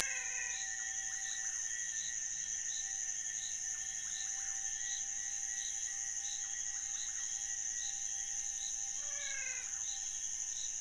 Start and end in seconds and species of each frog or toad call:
0.0	0.9	Physalaemus albonotatus
9.0	9.9	Physalaemus albonotatus
Cerrado, Brazil, 1:30am

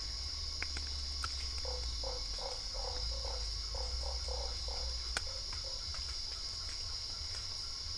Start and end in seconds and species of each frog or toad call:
1.6	5.9	Boana lundii
Cerrado, Brazil, 8:00pm

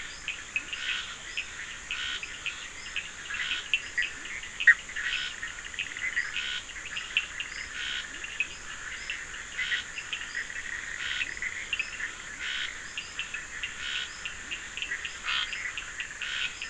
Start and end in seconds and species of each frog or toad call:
0.0	16.6	Scinax perereca
0.2	7.4	Sphaenorhynchus surdus
0.5	0.8	Leptodactylus latrans
3.4	4.4	Leptodactylus latrans
8.0	8.6	Leptodactylus latrans
9.9	15.2	Sphaenorhynchus surdus
11.1	11.5	Leptodactylus latrans
14.3	14.7	Leptodactylus latrans
Atlantic Forest, Brazil, 10:30pm

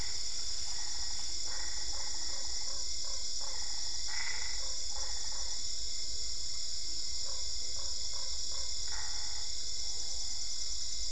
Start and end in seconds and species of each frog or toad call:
0.0	5.6	Boana albopunctata
1.4	5.7	Boana lundii
7.2	8.9	Boana lundii
8.9	9.7	Boana albopunctata
Cerrado, Brazil, 10:30pm

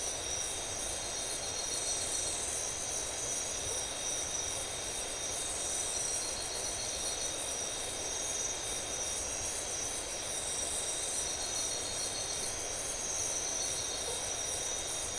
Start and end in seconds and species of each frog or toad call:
14.0	14.4	Boana faber
Atlantic Forest, Brazil, 2:00am

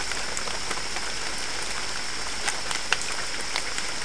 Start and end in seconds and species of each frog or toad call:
none
Cerrado, Brazil, 5:00am

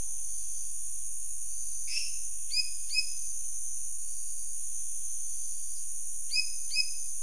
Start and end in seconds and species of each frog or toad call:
1.8	3.3	Dendropsophus minutus
Cerrado, Brazil, 7:15pm

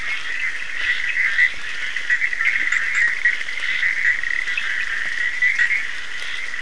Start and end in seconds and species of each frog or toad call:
0.0	6.6	Boana bischoffi
0.0	6.6	Sphaenorhynchus surdus
0.6	1.2	Scinax perereca
2.4	2.8	Leptodactylus latrans
3.4	4.0	Scinax perereca
Atlantic Forest, Brazil, 12:45am

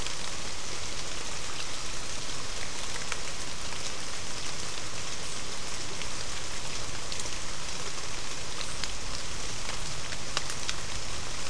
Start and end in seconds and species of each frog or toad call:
none
Atlantic Forest, Brazil, 5:45pm

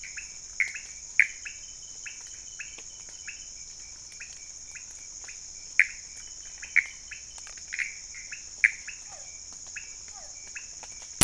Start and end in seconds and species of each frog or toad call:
0.0	11.2	Leptodactylus podicipinus
0.0	11.2	Pithecopus azureus
9.0	10.4	Physalaemus cuvieri
Cerrado, Brazil, 1:00am

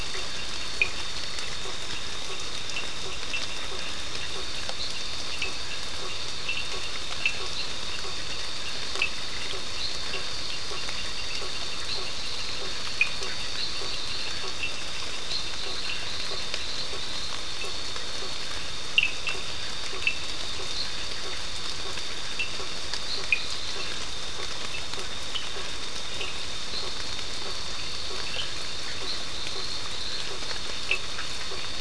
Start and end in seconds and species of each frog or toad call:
0.0	30.4	Boana faber
0.0	31.2	Sphaenorhynchus surdus
Atlantic Forest, Brazil, 10:15pm

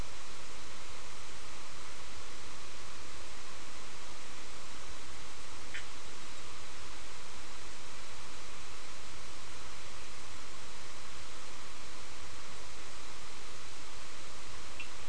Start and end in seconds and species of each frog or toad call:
5.7	5.9	Boana bischoffi
14.8	15.0	Sphaenorhynchus surdus
Atlantic Forest, Brazil, 6:30pm

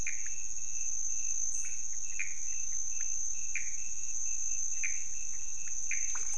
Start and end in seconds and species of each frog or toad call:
0.0	0.2	Pithecopus azureus
1.6	2.2	Leptodactylus podicipinus
2.2	2.4	Pithecopus azureus
2.4	3.2	Leptodactylus podicipinus
3.5	3.9	Pithecopus azureus
4.8	5.2	Pithecopus azureus
5.1	5.8	Leptodactylus podicipinus
5.9	6.2	Pithecopus azureus
Cerrado, Brazil, 4:00am

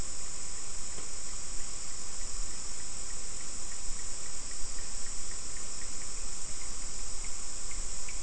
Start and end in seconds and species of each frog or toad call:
5.6	8.2	Sphaenorhynchus surdus
Atlantic Forest, Brazil, 5:15pm

